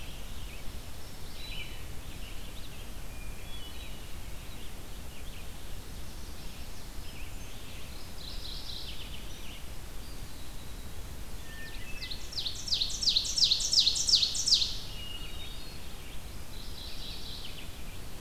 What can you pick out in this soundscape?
Red-eyed Vireo, Hermit Thrush, Mourning Warbler, Ovenbird